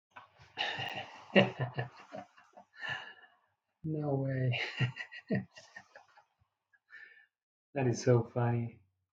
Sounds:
Laughter